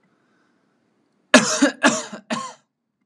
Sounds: Cough